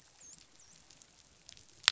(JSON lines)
{"label": "biophony, dolphin", "recorder": "SoundTrap 500"}